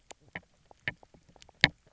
{"label": "biophony, knock croak", "recorder": "SoundTrap 300"}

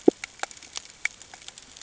{"label": "ambient", "recorder": "HydroMoth"}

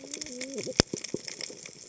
{"label": "biophony, cascading saw", "recorder": "HydroMoth"}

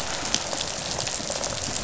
{"label": "biophony, rattle response", "recorder": "SoundTrap 500"}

